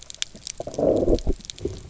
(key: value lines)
label: biophony, low growl
recorder: SoundTrap 300